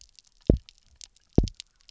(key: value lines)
label: biophony, double pulse
recorder: SoundTrap 300